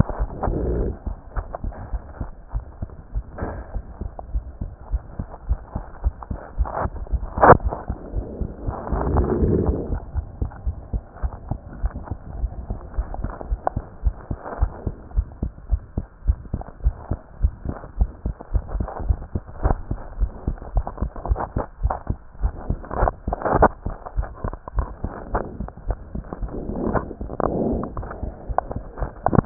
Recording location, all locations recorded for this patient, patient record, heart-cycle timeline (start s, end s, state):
tricuspid valve (TV)
aortic valve (AV)+pulmonary valve (PV)+tricuspid valve (TV)+mitral valve (MV)
#Age: Child
#Sex: Female
#Height: 115.0 cm
#Weight: 19.6 kg
#Pregnancy status: False
#Murmur: Present
#Murmur locations: aortic valve (AV)+mitral valve (MV)+pulmonary valve (PV)+tricuspid valve (TV)
#Most audible location: pulmonary valve (PV)
#Systolic murmur timing: Early-systolic
#Systolic murmur shape: Decrescendo
#Systolic murmur grading: II/VI
#Systolic murmur pitch: Low
#Systolic murmur quality: Blowing
#Diastolic murmur timing: nan
#Diastolic murmur shape: nan
#Diastolic murmur grading: nan
#Diastolic murmur pitch: nan
#Diastolic murmur quality: nan
#Outcome: Abnormal
#Campaign: 2015 screening campaign
0.00	10.60	unannotated
10.60	10.78	S1
10.78	10.92	systole
10.92	11.02	S2
11.02	11.22	diastole
11.22	11.32	S1
11.32	11.48	systole
11.48	11.60	S2
11.60	11.78	diastole
11.78	11.92	S1
11.92	12.08	systole
12.08	12.18	S2
12.18	12.36	diastole
12.36	12.52	S1
12.52	12.68	systole
12.68	12.80	S2
12.80	12.96	diastole
12.96	13.08	S1
13.08	13.20	systole
13.20	13.32	S2
13.32	13.48	diastole
13.48	13.60	S1
13.60	13.72	systole
13.72	13.82	S2
13.82	14.02	diastole
14.02	14.16	S1
14.16	14.28	systole
14.28	14.38	S2
14.38	14.58	diastole
14.58	14.72	S1
14.72	14.84	systole
14.84	14.94	S2
14.94	15.14	diastole
15.14	15.28	S1
15.28	15.40	systole
15.40	15.52	S2
15.52	15.68	diastole
15.68	15.82	S1
15.82	15.96	systole
15.96	16.04	S2
16.04	16.24	diastole
16.24	16.38	S1
16.38	16.52	systole
16.52	16.64	S2
16.64	16.82	diastole
16.82	16.96	S1
16.96	17.10	systole
17.10	17.18	S2
17.18	17.36	diastole
17.36	17.52	S1
17.52	17.66	systole
17.66	17.76	S2
17.76	17.85	diastole
17.85	29.46	unannotated